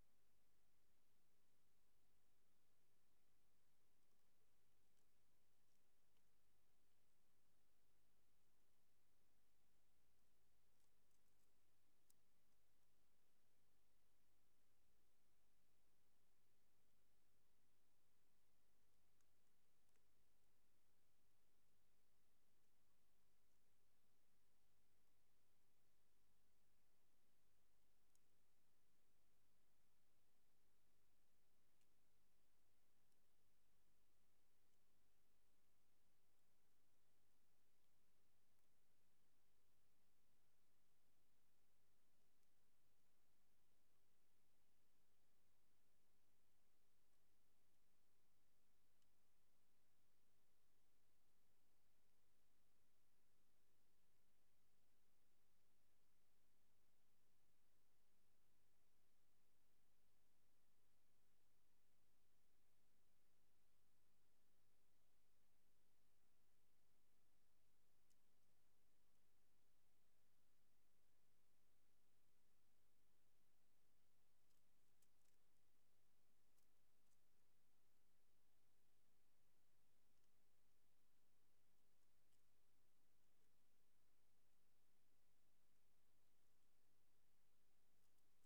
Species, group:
Eupholidoptera forcipata
Orthoptera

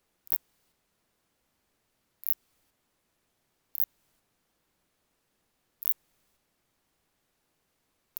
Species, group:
Phaneroptera nana
Orthoptera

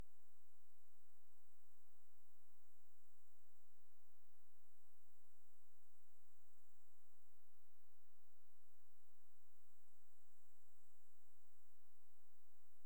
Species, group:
Leptophyes punctatissima
Orthoptera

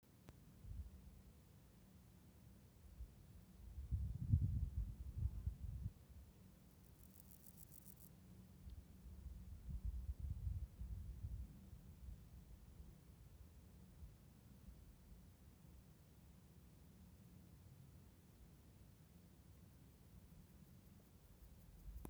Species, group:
Pseudochorthippus parallelus
Orthoptera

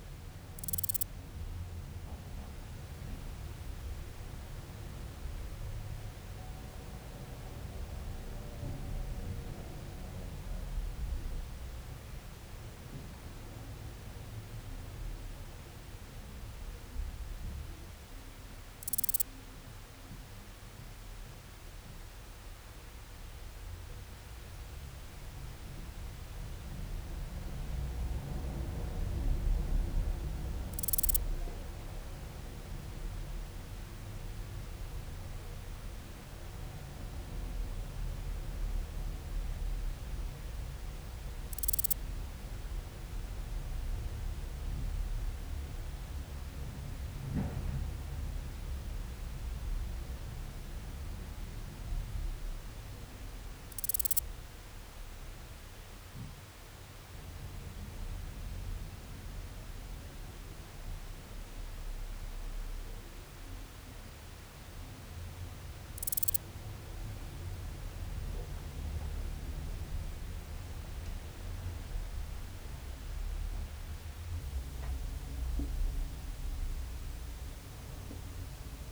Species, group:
Euthystira brachyptera
Orthoptera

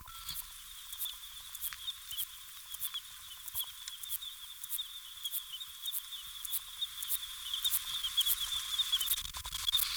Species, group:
Antaxius spinibrachius
Orthoptera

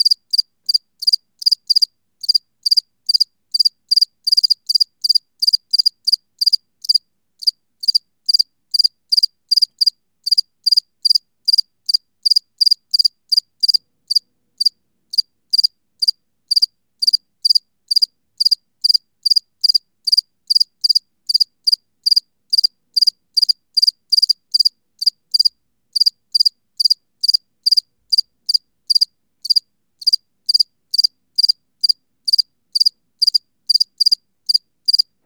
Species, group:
Acheta domesticus
Orthoptera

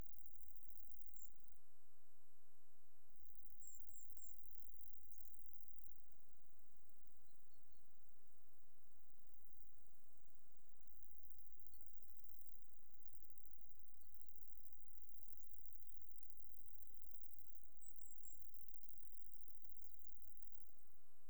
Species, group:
Conocephalus fuscus
Orthoptera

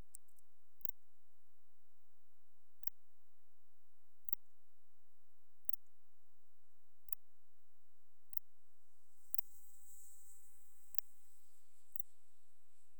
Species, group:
Parasteropleurus martorellii
Orthoptera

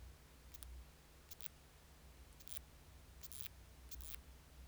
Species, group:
Isophya kraussii
Orthoptera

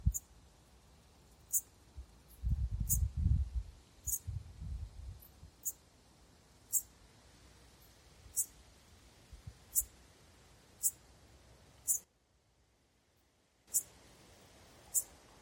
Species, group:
Eupholidoptera schmidti
Orthoptera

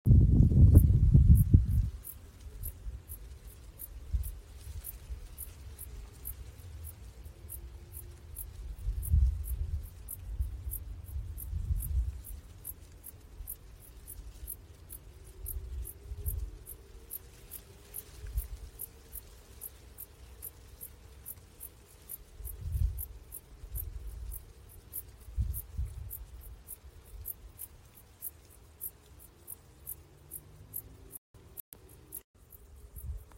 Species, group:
Pholidoptera griseoaptera
Orthoptera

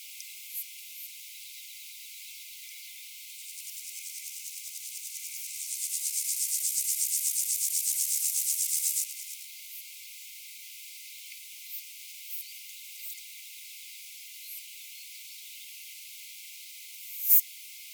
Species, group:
Poecilimon artedentatus
Orthoptera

